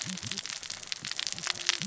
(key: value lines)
label: biophony, cascading saw
recorder: SoundTrap 600 or HydroMoth